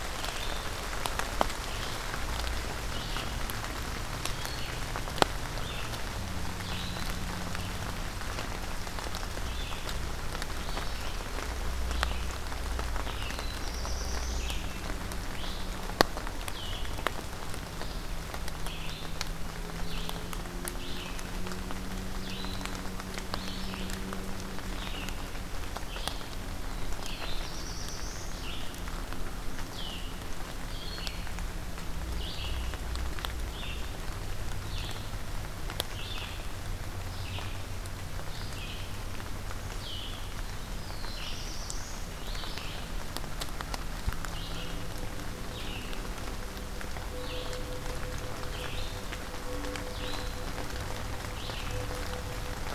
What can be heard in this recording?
Red-eyed Vireo, Black-throated Blue Warbler